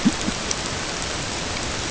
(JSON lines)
{"label": "ambient", "recorder": "HydroMoth"}